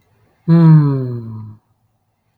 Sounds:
Sigh